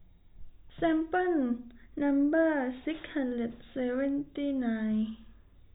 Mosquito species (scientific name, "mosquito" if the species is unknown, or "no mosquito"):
no mosquito